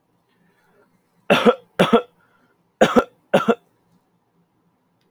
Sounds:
Cough